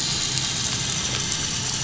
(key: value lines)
label: anthrophony, boat engine
recorder: SoundTrap 500